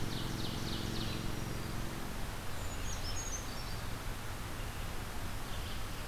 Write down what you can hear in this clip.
Ovenbird, Red-eyed Vireo, Black-throated Green Warbler, Brown Creeper